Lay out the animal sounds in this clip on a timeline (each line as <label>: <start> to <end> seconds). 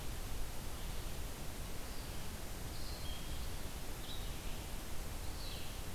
Red-eyed Vireo (Vireo olivaceus): 0.0 to 5.7 seconds